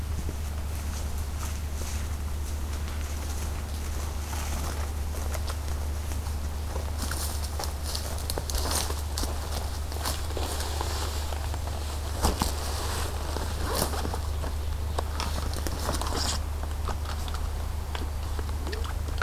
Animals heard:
forest ambience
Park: Acadia National Park